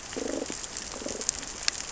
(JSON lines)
{"label": "biophony, damselfish", "recorder": "SoundTrap 600 or HydroMoth"}